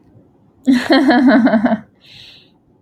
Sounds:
Laughter